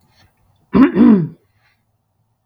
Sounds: Throat clearing